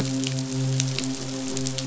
{"label": "biophony, midshipman", "recorder": "SoundTrap 500"}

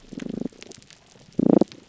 {"label": "biophony", "recorder": "SoundTrap 300"}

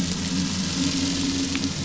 {"label": "anthrophony, boat engine", "recorder": "SoundTrap 500"}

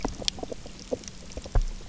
{"label": "biophony, knock croak", "recorder": "SoundTrap 300"}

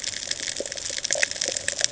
{"label": "ambient", "recorder": "HydroMoth"}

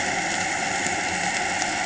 {"label": "anthrophony, boat engine", "recorder": "HydroMoth"}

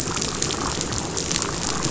{"label": "biophony, damselfish", "recorder": "SoundTrap 500"}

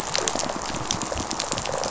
{"label": "biophony, rattle response", "recorder": "SoundTrap 500"}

